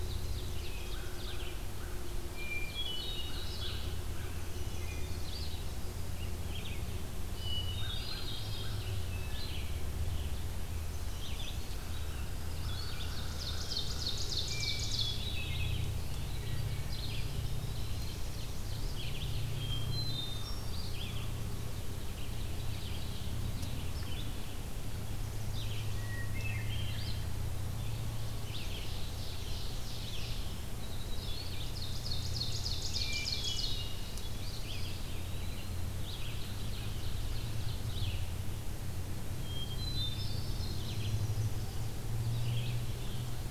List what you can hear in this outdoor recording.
Ovenbird, Red-eyed Vireo, American Crow, Hermit Thrush, Wood Thrush, Eastern Wood-Pewee, Chestnut-sided Warbler